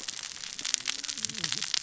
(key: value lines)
label: biophony, cascading saw
recorder: SoundTrap 600 or HydroMoth